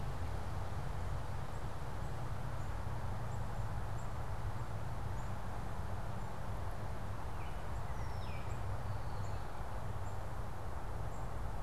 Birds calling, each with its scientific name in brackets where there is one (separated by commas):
Baltimore Oriole (Icterus galbula), unidentified bird, Red-winged Blackbird (Agelaius phoeniceus)